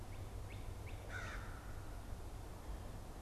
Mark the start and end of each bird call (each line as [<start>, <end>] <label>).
[0.00, 1.04] Northern Cardinal (Cardinalis cardinalis)
[1.04, 1.64] American Crow (Corvus brachyrhynchos)